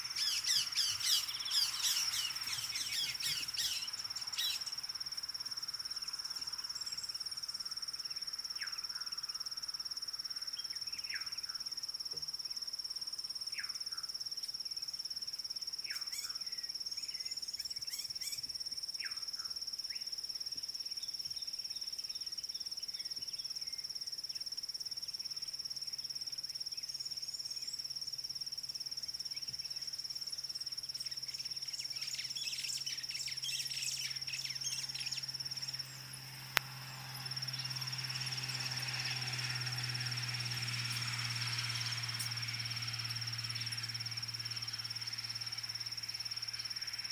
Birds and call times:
White-rumped Shrike (Eurocephalus ruppelli): 0:01.2, 0:16.2
Red-cheeked Cordonbleu (Uraeginthus bengalus): 0:27.3
White-browed Sparrow-Weaver (Plocepasser mahali): 0:33.6

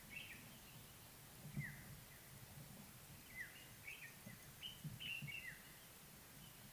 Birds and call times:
African Black-headed Oriole (Oriolus larvatus): 0:03.4
Common Bulbul (Pycnonotus barbatus): 0:05.2

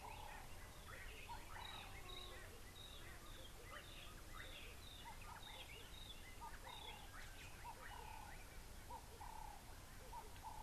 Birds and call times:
White-browed Robin-Chat (Cossypha heuglini): 0:01.7
Ring-necked Dove (Streptopelia capicola): 0:09.3

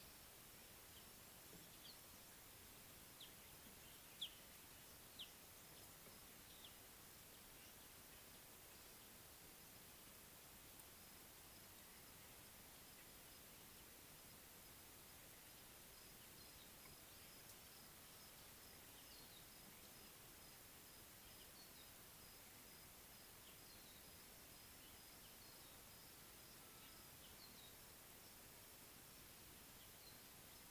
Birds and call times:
Scarlet-chested Sunbird (Chalcomitra senegalensis): 0:04.2, 0:21.6

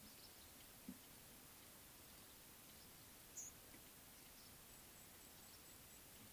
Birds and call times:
Speckle-fronted Weaver (Sporopipes frontalis): 0:03.4

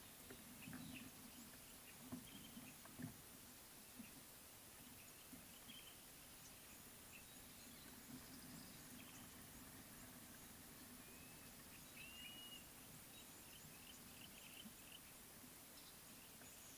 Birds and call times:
Blue-naped Mousebird (Urocolius macrourus): 0:12.2
Yellow-breasted Apalis (Apalis flavida): 0:13.8

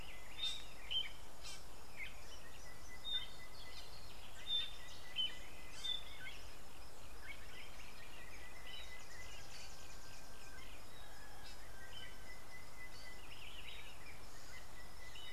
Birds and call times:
Fork-tailed Drongo (Dicrurus adsimilis): 0:01.5
Sulphur-breasted Bushshrike (Telophorus sulfureopectus): 0:12.7

